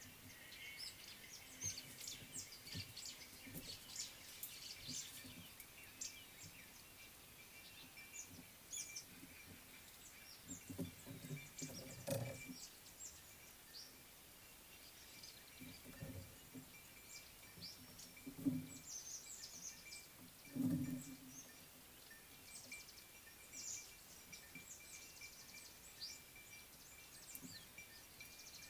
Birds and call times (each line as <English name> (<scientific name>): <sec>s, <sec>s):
Speckled Mousebird (Colius striatus): 1.8s, 19.4s
Red-faced Crombec (Sylvietta whytii): 6.0s
Variable Sunbird (Cinnyris venustus): 22.7s